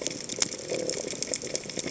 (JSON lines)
{"label": "biophony", "recorder": "HydroMoth"}